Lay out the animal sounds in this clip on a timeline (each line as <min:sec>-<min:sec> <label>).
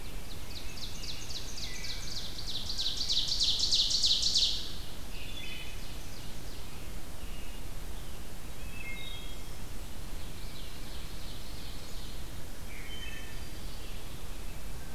0:00.0-0:06.7 Ovenbird (Seiurus aurocapilla)
0:00.5-0:02.1 American Robin (Turdus migratorius)
0:02.6-0:03.3 Wood Thrush (Hylocichla mustelina)
0:05.3-0:05.9 Wood Thrush (Hylocichla mustelina)
0:06.1-0:08.7 American Robin (Turdus migratorius)
0:08.6-0:09.4 Wood Thrush (Hylocichla mustelina)
0:10.0-0:12.2 Ovenbird (Seiurus aurocapilla)
0:12.6-0:13.8 Wood Thrush (Hylocichla mustelina)